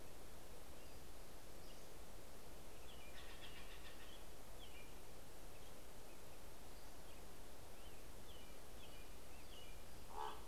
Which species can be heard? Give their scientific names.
Empidonax difficilis, Cyanocitta stelleri, Turdus migratorius